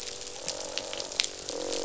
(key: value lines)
label: biophony, croak
recorder: SoundTrap 500